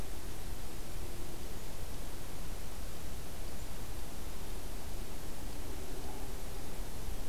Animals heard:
forest ambience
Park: Acadia National Park